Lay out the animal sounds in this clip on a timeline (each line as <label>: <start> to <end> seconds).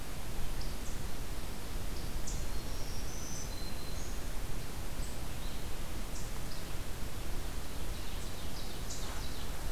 Black-throated Green Warbler (Setophaga virens): 2.1 to 4.4 seconds
Ovenbird (Seiurus aurocapilla): 7.7 to 9.7 seconds